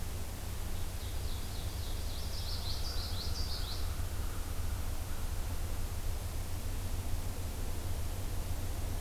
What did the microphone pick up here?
Ovenbird, Common Yellowthroat, American Crow